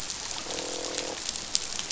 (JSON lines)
{"label": "biophony, croak", "recorder": "SoundTrap 500"}